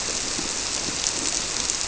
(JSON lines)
{"label": "biophony", "recorder": "SoundTrap 300"}